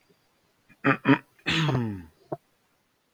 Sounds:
Throat clearing